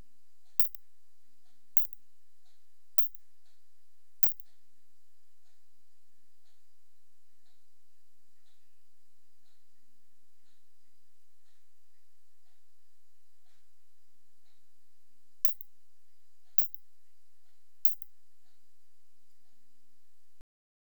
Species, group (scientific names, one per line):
Isophya lemnotica
Orthoptera